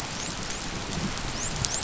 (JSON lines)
{"label": "biophony, dolphin", "recorder": "SoundTrap 500"}